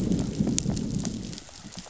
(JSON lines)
{"label": "biophony, growl", "recorder": "SoundTrap 500"}